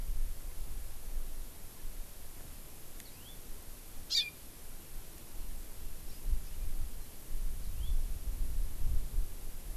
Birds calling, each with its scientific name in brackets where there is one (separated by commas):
Hawaii Amakihi (Chlorodrepanis virens), Yellow-fronted Canary (Crithagra mozambica)